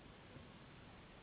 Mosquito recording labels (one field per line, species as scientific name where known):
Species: Anopheles gambiae s.s.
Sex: female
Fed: unfed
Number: one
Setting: insect culture